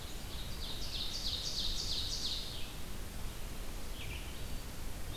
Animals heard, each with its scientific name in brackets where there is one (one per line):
Ovenbird (Seiurus aurocapilla)
Red-eyed Vireo (Vireo olivaceus)